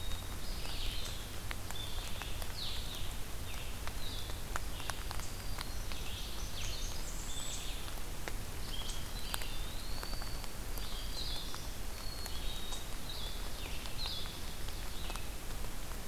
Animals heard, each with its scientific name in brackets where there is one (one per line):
Eastern Wood-Pewee (Contopus virens)
Blackburnian Warbler (Setophaga fusca)
Black-throated Green Warbler (Setophaga virens)
Black-capped Chickadee (Poecile atricapillus)
Red-eyed Vireo (Vireo olivaceus)